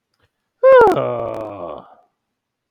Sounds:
Sigh